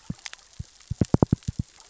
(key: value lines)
label: biophony, knock
recorder: SoundTrap 600 or HydroMoth